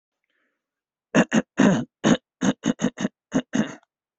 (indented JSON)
{
  "expert_labels": [
    {
      "quality": "no cough present",
      "cough_type": "wet",
      "dyspnea": false,
      "wheezing": false,
      "stridor": false,
      "choking": false,
      "congestion": false,
      "nothing": false,
      "diagnosis": "healthy cough",
      "severity": "unknown"
    }
  ],
  "age": 60,
  "gender": "female",
  "respiratory_condition": false,
  "fever_muscle_pain": false,
  "status": "symptomatic"
}